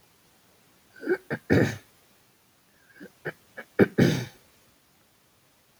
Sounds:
Throat clearing